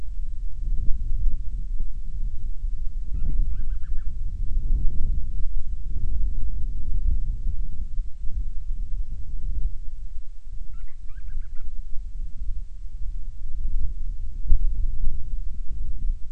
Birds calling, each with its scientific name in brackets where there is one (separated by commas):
Band-rumped Storm-Petrel (Hydrobates castro)